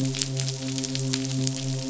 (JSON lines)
{"label": "biophony, midshipman", "recorder": "SoundTrap 500"}